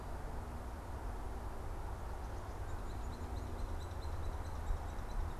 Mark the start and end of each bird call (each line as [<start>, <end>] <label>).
[2.61, 5.39] Hairy Woodpecker (Dryobates villosus)